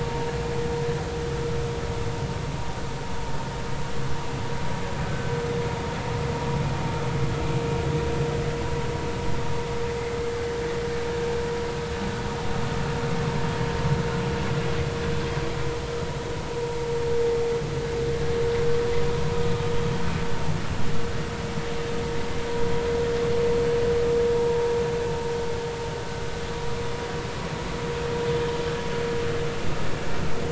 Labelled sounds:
24.3	24.7	vessel noise, 0.86 to 1.0 kHz

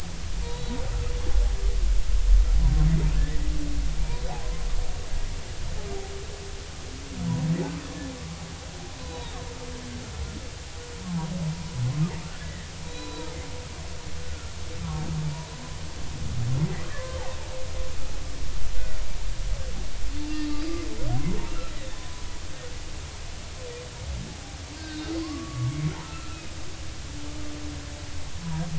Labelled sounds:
10.0	10.4	humpback whale, 3.6 to 4.1 kHz
12.4	13.4	humpback whale, 0.86 to 4.0 kHz
14.2	14.5	humpback whale, 1.3 to 1.5 kHz
14.8	15.1	humpback whale, 0.86 to 1.2 kHz
16.9	17.2	humpback whale, 0.99 to 1.2 kHz
20.3	20.7	humpback whale, 1.1 to 4.9 kHz
21.7	22.2	humpback whale, 0.96 to 4.0 kHz
24.8	25.8	humpback whale, 0.99 to 3.8 kHz
26.0	26.4	humpback whale, 1.2 to 1.4 kHz

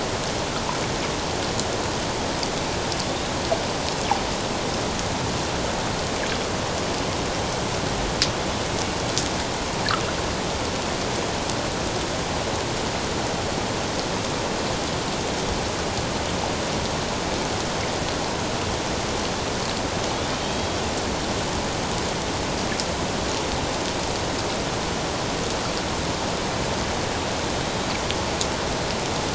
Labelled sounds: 20.4	20.8	killer whale, Bigg's (transient), 3.1 to 3.3 kHz

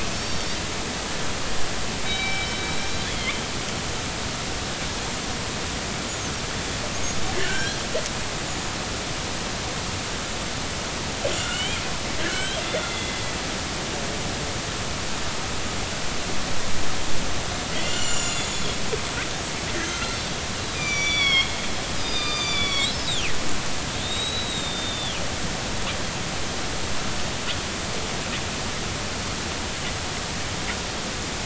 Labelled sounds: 0.1	0.6	killer whale, northern resident, G clan, GG subclan, call N41, 3.6 to 5.6 kHz
2.0	2.5	killer whale, northern resident, G clan, call N24ii, 2.2 to 3.9 kHz
3.0	3.3	killer whale, northern resident, G clan, GG subclan, call N45, 3.0 to 3.6 kHz
7.4	7.8	killer whale, northern resident, G clan, call N40, 1.4 to 3.4 kHz
11.4	11.8	killer whale, northern resident, G clan, call N40, 1.3 to 3.3 kHz
12.3	13.3	killer whale, northern resident, G clan, call N40, 1.4 to 3.6 kHz
17.7	18.8	killer whale, northern resident, G clan, call N40, 2.7 to 7.4 kHz
19.0	20.1	killer whale, northern resident, G clan, GG subclan, call N41, 6.1 to 8.0 kHz
20.0	20.3	killer whale, northern resident, G clan, call N40, 4.0 to 4.2 kHz
20.6	21.5	killer whale, northern resident, G clan, GG subclan, call N45, 1.0 to 6.1 kHz
22.0	23.5	killer whale, northern resident, G clan, GG subclan, call N45, 1.2 to 5.7 kHz
24.0	25.2	killer whale, northern resident, 3.1 to 7.8 kHz

